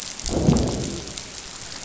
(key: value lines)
label: biophony, growl
recorder: SoundTrap 500